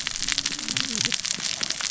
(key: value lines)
label: biophony, cascading saw
recorder: SoundTrap 600 or HydroMoth